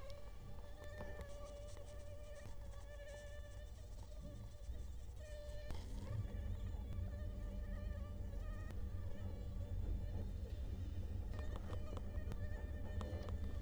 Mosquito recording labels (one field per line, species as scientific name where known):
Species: Culex quinquefasciatus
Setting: cup